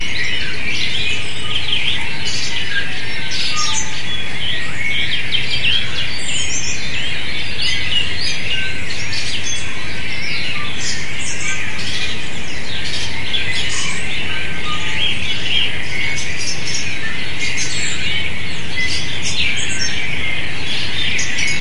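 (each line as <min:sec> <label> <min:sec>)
0:00.0 A bird tweets loudly outside. 0:21.6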